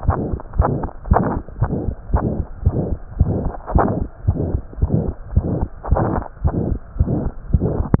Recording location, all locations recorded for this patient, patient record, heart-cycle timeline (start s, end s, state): tricuspid valve (TV)
aortic valve (AV)+pulmonary valve (PV)+tricuspid valve (TV)+mitral valve (MV)
#Age: Child
#Sex: Male
#Height: nan
#Weight: nan
#Pregnancy status: False
#Murmur: Present
#Murmur locations: aortic valve (AV)+mitral valve (MV)+pulmonary valve (PV)+tricuspid valve (TV)
#Most audible location: tricuspid valve (TV)
#Systolic murmur timing: Holosystolic
#Systolic murmur shape: Diamond
#Systolic murmur grading: III/VI or higher
#Systolic murmur pitch: High
#Systolic murmur quality: Blowing
#Diastolic murmur timing: nan
#Diastolic murmur shape: nan
#Diastolic murmur grading: nan
#Diastolic murmur pitch: nan
#Diastolic murmur quality: nan
#Outcome: Abnormal
#Campaign: 2015 screening campaign
0.00	0.54	unannotated
0.54	0.64	S1
0.64	0.81	systole
0.81	0.88	S2
0.88	1.06	diastole
1.06	1.17	S1
1.17	1.33	systole
1.33	1.41	S2
1.41	1.60	diastole
1.60	1.70	S1
1.70	1.85	systole
1.85	1.94	S2
1.94	2.09	diastole
2.09	2.19	S1
2.19	2.37	systole
2.37	2.45	S2
2.45	2.62	diastole
2.62	2.74	S1
2.74	2.86	systole
2.86	2.98	S2
2.98	3.16	diastole
3.16	3.27	S1
3.27	3.42	systole
3.42	3.52	S2
3.52	3.74	diastole
3.74	3.90	S1
3.90	3.98	systole
3.98	4.06	S2
4.06	4.26	diastole
4.26	4.36	S1
4.36	4.51	systole
4.51	4.61	S2
4.61	4.78	diastole
4.78	4.92	S1
4.92	5.05	systole
5.05	5.14	S2
5.14	5.32	diastole
5.32	5.46	S1
5.46	5.59	systole
5.59	5.68	S2
5.68	5.88	diastole
5.88	6.00	S1
6.00	6.14	systole
6.14	6.24	S2
6.24	6.42	diastole
6.42	6.54	S1
6.54	6.68	systole
6.68	6.79	S2
6.79	6.95	diastole
6.95	7.08	S1
7.08	7.24	systole
7.24	7.32	S2
7.32	7.50	diastole
7.50	7.61	S1
7.61	7.77	systole
7.77	7.85	S2
7.85	8.00	unannotated